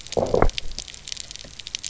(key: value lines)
label: biophony, low growl
recorder: SoundTrap 300